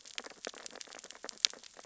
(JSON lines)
{"label": "biophony, sea urchins (Echinidae)", "recorder": "SoundTrap 600 or HydroMoth"}